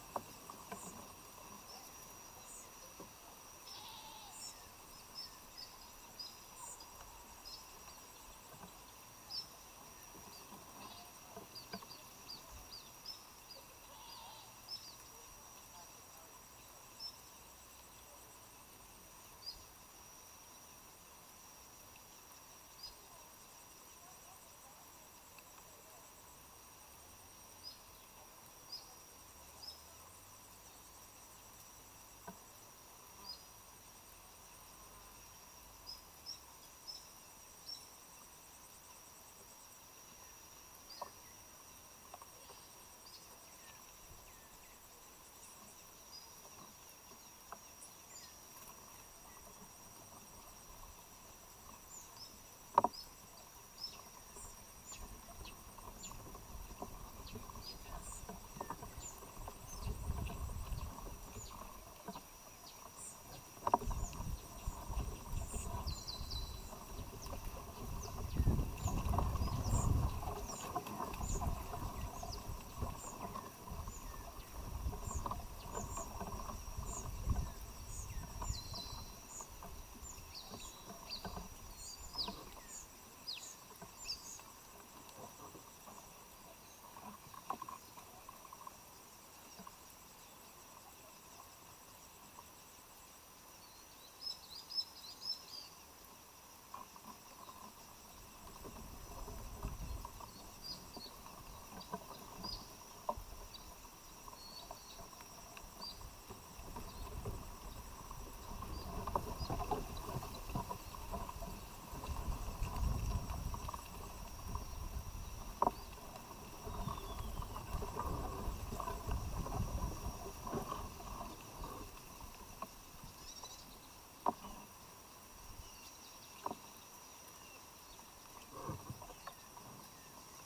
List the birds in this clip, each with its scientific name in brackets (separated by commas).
Mountain Wagtail (Motacilla clara), Cinnamon-chested Bee-eater (Merops oreobates), White-eyed Slaty-Flycatcher (Melaenornis fischeri)